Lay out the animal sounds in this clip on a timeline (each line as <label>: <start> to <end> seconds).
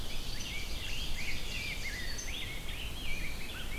Ovenbird (Seiurus aurocapilla): 0.0 to 2.3 seconds
Rose-breasted Grosbeak (Pheucticus ludovicianus): 0.0 to 3.8 seconds
American Crow (Corvus brachyrhynchos): 3.3 to 3.8 seconds